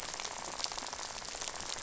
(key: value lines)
label: biophony, rattle
recorder: SoundTrap 500